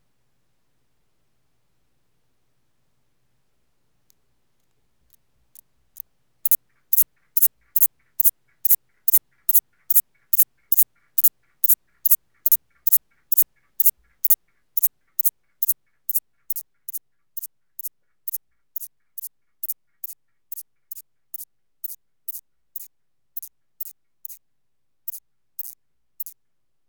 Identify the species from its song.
Thyreonotus corsicus